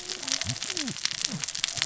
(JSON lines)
{"label": "biophony, cascading saw", "recorder": "SoundTrap 600 or HydroMoth"}